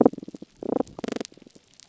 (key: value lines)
label: biophony, damselfish
recorder: SoundTrap 300